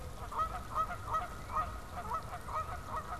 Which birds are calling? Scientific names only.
Branta canadensis, Cardinalis cardinalis